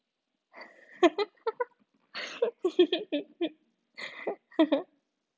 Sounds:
Laughter